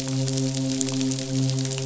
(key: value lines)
label: biophony, midshipman
recorder: SoundTrap 500